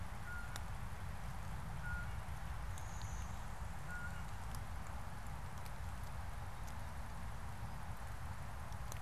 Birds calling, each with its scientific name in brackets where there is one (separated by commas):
Blue-winged Warbler (Vermivora cyanoptera), Blue Jay (Cyanocitta cristata)